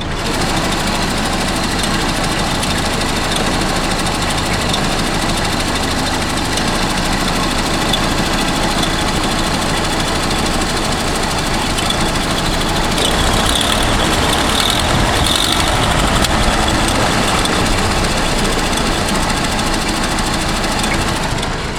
Does the vehicle whistle?
no